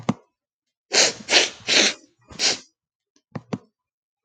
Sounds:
Sniff